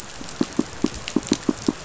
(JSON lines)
{"label": "biophony, pulse", "recorder": "SoundTrap 500"}